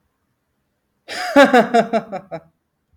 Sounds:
Laughter